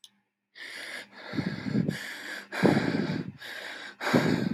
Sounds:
Sigh